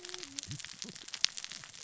{"label": "biophony, cascading saw", "recorder": "SoundTrap 600 or HydroMoth"}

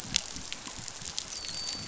{"label": "biophony, dolphin", "recorder": "SoundTrap 500"}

